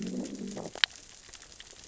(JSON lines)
{"label": "biophony, growl", "recorder": "SoundTrap 600 or HydroMoth"}